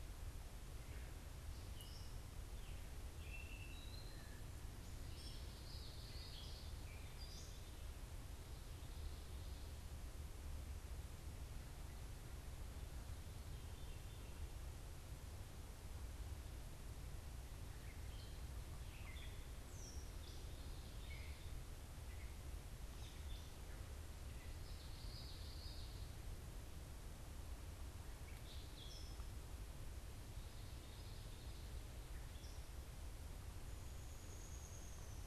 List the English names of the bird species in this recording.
Gray Catbird, Common Yellowthroat, Downy Woodpecker